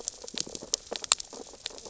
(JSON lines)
{"label": "biophony, sea urchins (Echinidae)", "recorder": "SoundTrap 600 or HydroMoth"}